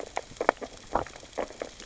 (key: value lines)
label: biophony, sea urchins (Echinidae)
recorder: SoundTrap 600 or HydroMoth